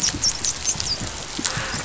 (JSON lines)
{"label": "biophony, dolphin", "recorder": "SoundTrap 500"}